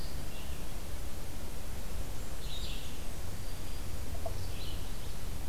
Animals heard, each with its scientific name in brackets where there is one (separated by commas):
Blackburnian Warbler (Setophaga fusca), Red-eyed Vireo (Vireo olivaceus)